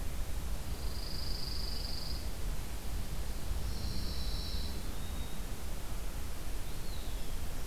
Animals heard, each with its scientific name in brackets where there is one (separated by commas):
Pine Warbler (Setophaga pinus), Eastern Wood-Pewee (Contopus virens)